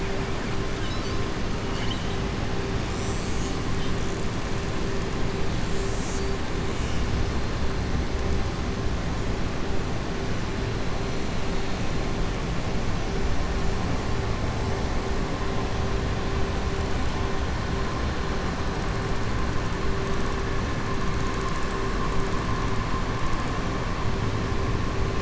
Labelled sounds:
1.6	2.2	killer whale, southern resident, 1.7 to 5.4 kHz

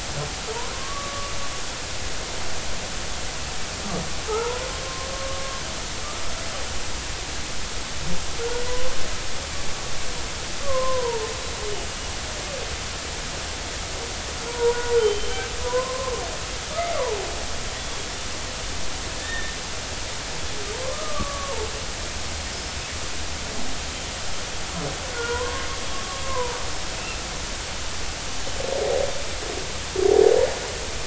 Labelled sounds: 0.7	1.3	humpback whale, 1.0 to 1.2 kHz
4.3	5.1	humpback whale, 0.80 to 1.4 kHz
8.7	8.9	humpback whale, 0.93 to 1.1 kHz
10.6	11.3	humpback whale, 0.83 to 1.2 kHz
14.5	15.3	humpback whale, 0.90 to 3.2 kHz
15.6	16.1	humpback whale, 0.93 to 1.1 kHz
17.0	17.2	humpback whale, 0.80 to 1.2 kHz
17.8	18.1	humpback whale, 3.2 to 3.5 kHz
19.2	19.6	humpback whale, 1.7 to 3.7 kHz
20.9	21.7	humpback whale, 0.83 to 1.3 kHz
25.1	25.7	humpback whale, 0.93 to 1.5 kHz
26.2	27.2	humpback whale, 0.90 to 2.8 kHz

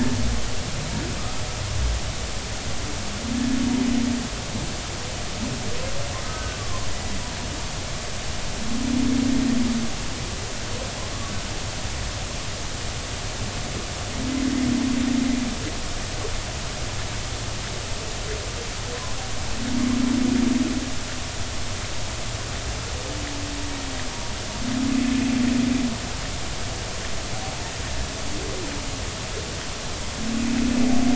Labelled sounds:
6.3	6.9	humpback whale, 0.99 to 1.6 kHz
30.6	30.8	humpback whale, 2.5 to 2.6 kHz

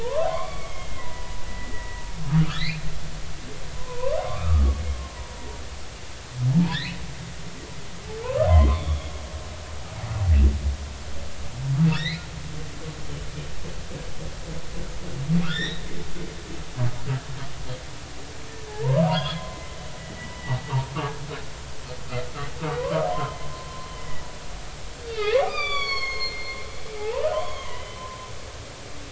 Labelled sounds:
0.0	2.0	humpback whale, 0.86 to 4.7 kHz
2.5	2.9	humpback whale, 1.6 to 4.5 kHz
3.7	4.7	humpback whale, 0.93 to 2.6 kHz
6.5	7.0	humpback whale, 0.86 to 4.5 kHz
8.2	9.1	humpback whale, 0.86 to 3.7 kHz
11.9	12.2	humpback whale, 1.6 to 4.2 kHz
15.4	15.8	humpback whale, 1.1 to 4.1 kHz
18.7	19.5	humpback whale, 0.80 to 3.6 kHz
20.0	20.9	humpback whale, 0.80 to 3.0 kHz
22.8	24.2	humpback whale, 0.93 to 3.2 kHz
25.1	26.6	humpback whale, 0.99 to 7.0 kHz
27.0	28.1	humpback whale, 0.80 to 6.7 kHz

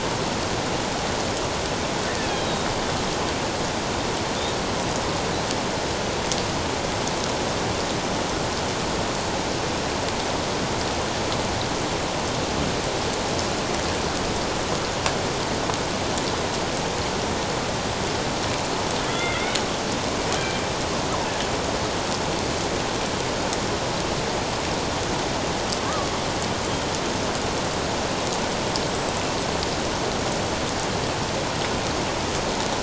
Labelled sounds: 2.4	2.7	killer whale, Bigg's (transient), 3.7 to 4.0 kHz
19.1	19.6	killer whale, Bigg's (transient), 1.2 to 3.6 kHz
28.9	29.2	killer whale, Bigg's (transient), 7.6 to 8.0 kHz

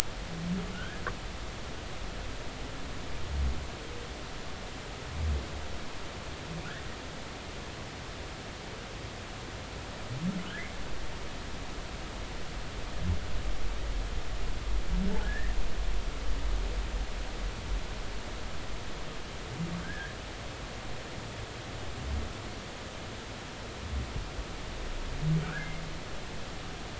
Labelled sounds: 0.7	1.0	humpback whale, 1.3 to 1.8 kHz
15.2	15.5	humpback whale, 1.6 to 2.0 kHz
19.8	20.2	humpback whale, 1.4 to 1.8 kHz
25.4	25.8	humpback whale, 1.2 to 2.2 kHz

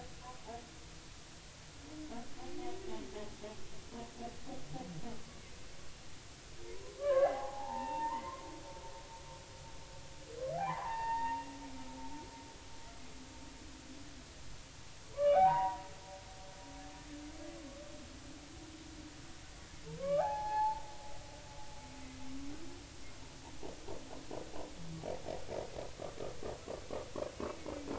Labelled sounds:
3.1	3.3	humpback whale, 0.80 to 0.90 kHz
6.6	8.3	humpback whale, 0.80 to 2.8 kHz
10.6	11.4	humpback whale, 0.80 to 4.6 kHz
15.1	15.9	humpback whale, 0.80 to 2.5 kHz
20.0	20.8	humpback whale, 0.80 to 4.4 kHz
27.8	27.9	humpback whale, 1.3 to 1.6 kHz

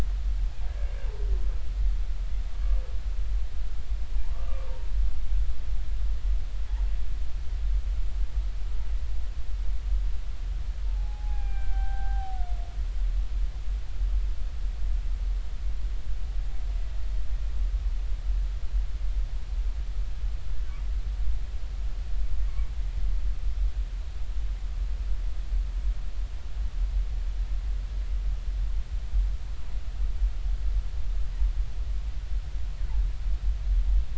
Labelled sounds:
2.5	2.8	humpback whale, 1.1 to 1.2 kHz
4.2	4.6	humpback whale, 0.83 to 1.2 kHz
10.9	12.3	humpback whale, 0.80 to 2.6 kHz
12.7	13.4	humpback whale, 0.80 to 0.83 kHz

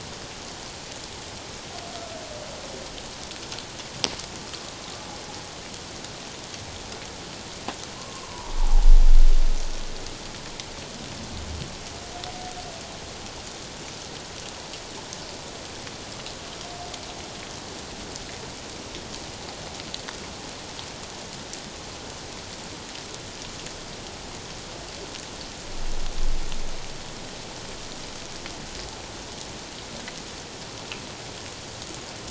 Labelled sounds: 8.0	8.9	humpback whale, 0.78 to 1.1 kHz

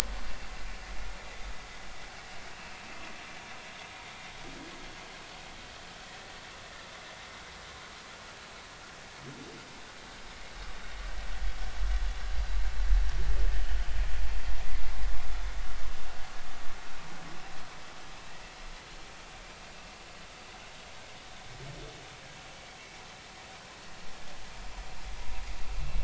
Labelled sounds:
2.5	2.8	vessel noise, 2.6 to 2.8 kHz
6.0	6.3	vessel noise, 1.8 to 2.0 kHz

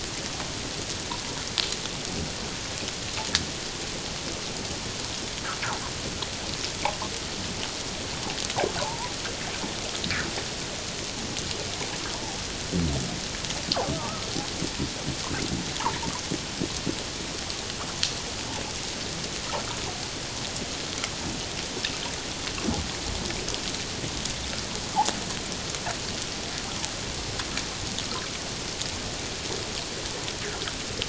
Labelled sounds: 8.8	9.1	fish, 0.78 to 1.1 kHz
13.9	14.2	fish, 1.1 to 1.4 kHz

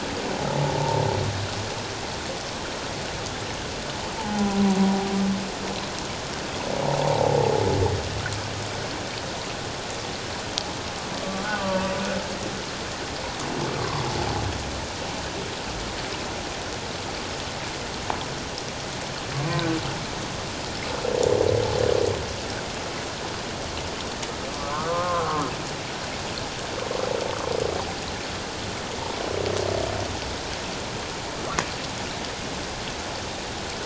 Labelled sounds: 4.2	4.6	humpback whale, 0.78 to 0.94 kHz
7.0	7.4	humpback whale, 0.78 to 0.97 kHz
11.2	11.9	humpback whale, 0.91 to 1.3 kHz
13.8	14.0	humpback whale, 0.91 to 1.2 kHz
24.5	25.5	humpback whale, 0.91 to 1.5 kHz

